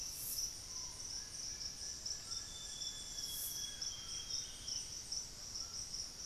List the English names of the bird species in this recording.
Buff-breasted Wren, White-throated Toucan, Screaming Piha, Plain-winged Antshrike, Amazonian Grosbeak